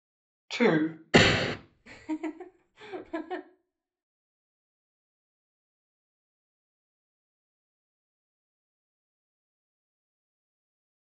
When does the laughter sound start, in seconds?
1.8 s